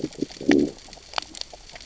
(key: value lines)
label: biophony, growl
recorder: SoundTrap 600 or HydroMoth